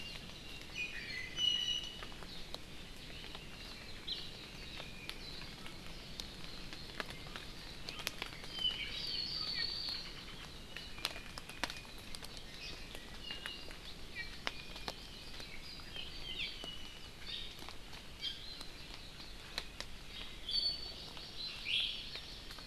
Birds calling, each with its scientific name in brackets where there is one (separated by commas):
Iiwi (Drepanis coccinea), Apapane (Himatione sanguinea), Hawaii Amakihi (Chlorodrepanis virens)